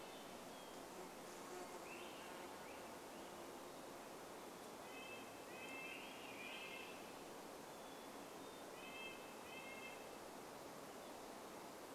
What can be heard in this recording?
Hermit Thrush song, insect buzz, Swainson's Thrush song, Red-breasted Nuthatch song